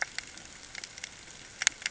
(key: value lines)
label: ambient
recorder: HydroMoth